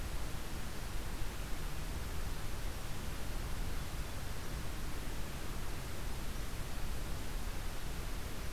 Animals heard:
forest ambience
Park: Marsh-Billings-Rockefeller National Historical Park